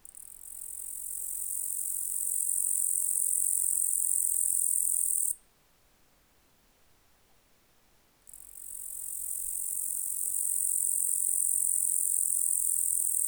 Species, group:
Tettigonia caudata
Orthoptera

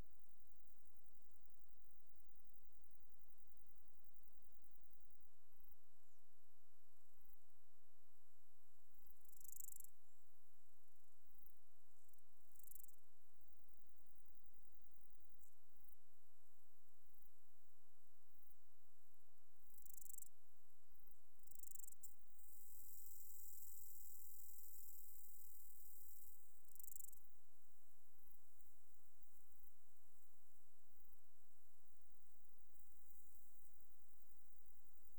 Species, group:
Arcyptera fusca
Orthoptera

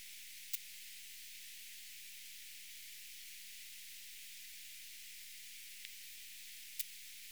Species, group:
Poecilimon zwicki
Orthoptera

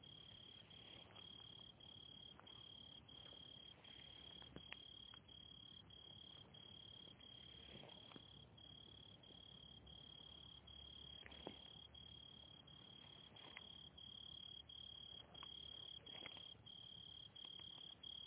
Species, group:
Oecanthus pellucens
Orthoptera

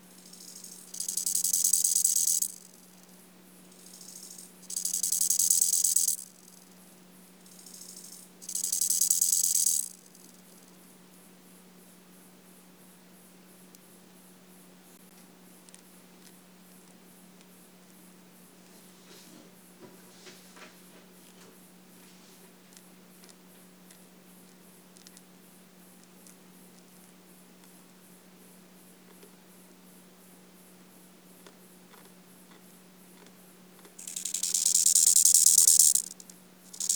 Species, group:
Chorthippus eisentrauti
Orthoptera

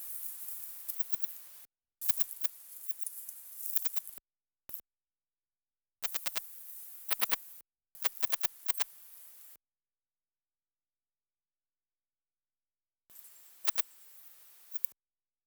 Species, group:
Tessellana tessellata
Orthoptera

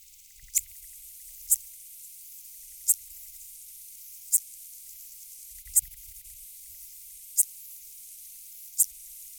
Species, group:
Psorodonotus macedonicus
Orthoptera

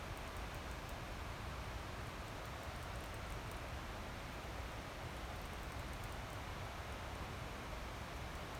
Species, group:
Platypedia putnami
Cicadidae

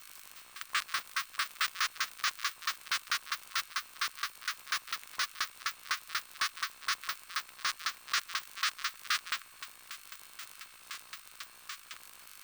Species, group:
Poecilimon mytilenensis
Orthoptera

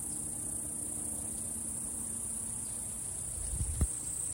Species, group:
Okanagana canescens
Cicadidae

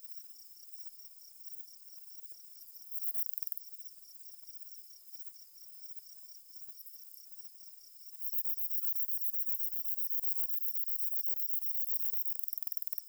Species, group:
Platycleis affinis
Orthoptera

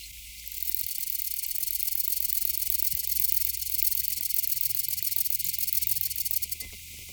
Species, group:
Conocephalus fuscus
Orthoptera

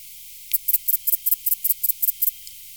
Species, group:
Sepiana sepium
Orthoptera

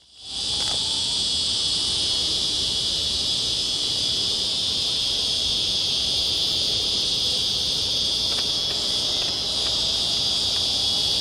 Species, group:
Psaltoda plaga
Cicadidae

